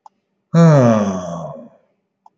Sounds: Sigh